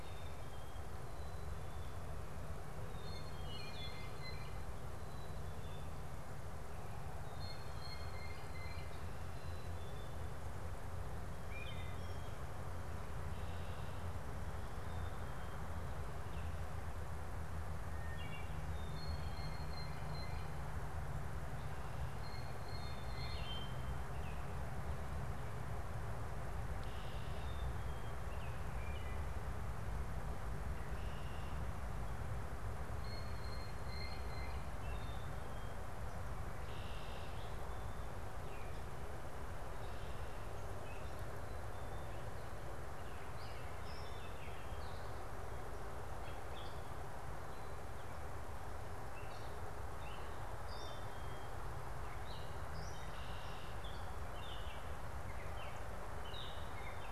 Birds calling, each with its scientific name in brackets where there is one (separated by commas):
Wood Thrush (Hylocichla mustelina), Black-capped Chickadee (Poecile atricapillus), Blue Jay (Cyanocitta cristata), Red-winged Blackbird (Agelaius phoeniceus), Gray Catbird (Dumetella carolinensis), Baltimore Oriole (Icterus galbula)